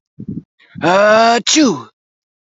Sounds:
Sneeze